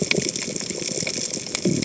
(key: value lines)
label: biophony
recorder: HydroMoth